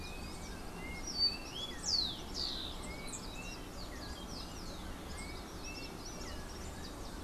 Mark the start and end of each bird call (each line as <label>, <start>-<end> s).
Yellow-backed Oriole (Icterus chrysater), 0.0-7.0 s
Rufous-collared Sparrow (Zonotrichia capensis), 0.7-3.0 s
Common Tody-Flycatcher (Todirostrum cinereum), 4.9-6.6 s